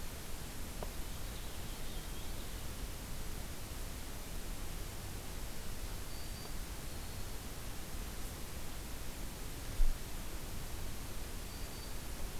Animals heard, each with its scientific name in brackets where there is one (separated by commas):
Purple Finch (Haemorhous purpureus), Black-throated Green Warbler (Setophaga virens)